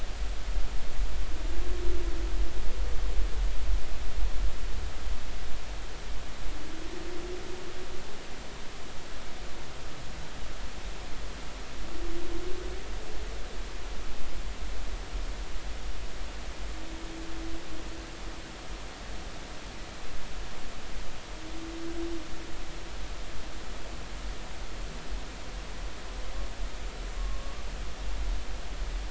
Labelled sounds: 27.2	27.6	humpback whale, 1.0 to 1.2 kHz

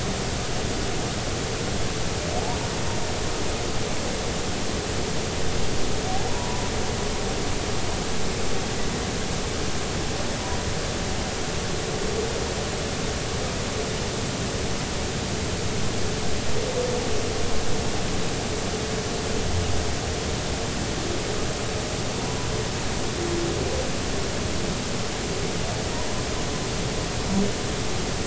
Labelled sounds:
6.3	6.7	humpback whale, 0.90 to 1.0 kHz
22.1	22.4	humpback whale, 0.83 to 1.0 kHz

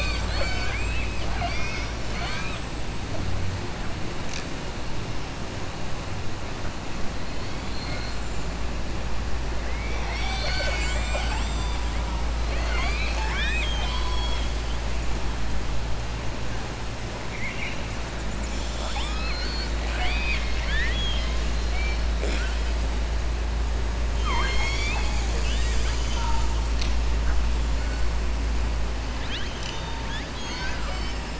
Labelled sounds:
7.6	8.2	killer whale, southern resident, 3.9 to 5.0 kHz
17.3	17.8	killer whale, southern resident, 2.0 to 2.9 kHz
18.2	21.4	killer whale, southern resident, 0.75 to 8.0 kHz
30.0	31.2	killer whale, southern resident, 0.76 to 7.4 kHz

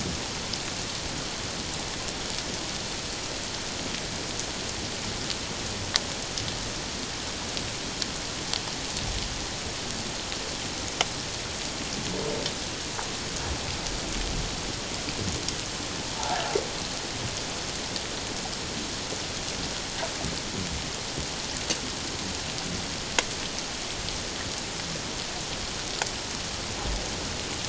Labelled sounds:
16.2	16.4	humpback whale, 0.78 to 0.97 kHz

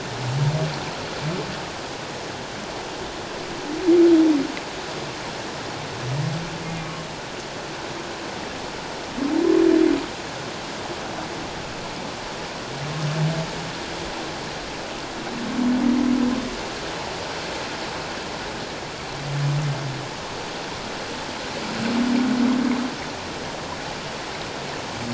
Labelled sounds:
6.6	6.9	humpback whale, 2.0 to 2.2 kHz

